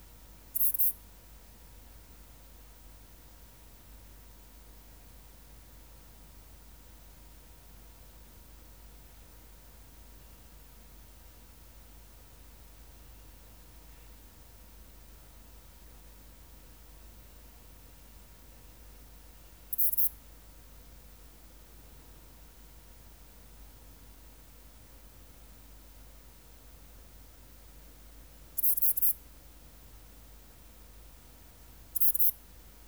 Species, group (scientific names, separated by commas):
Ephippiger diurnus, Orthoptera